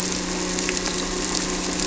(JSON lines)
{"label": "anthrophony, boat engine", "recorder": "SoundTrap 300"}